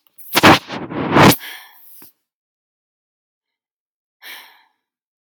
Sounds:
Sigh